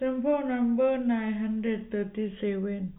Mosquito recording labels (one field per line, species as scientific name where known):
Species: no mosquito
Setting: cup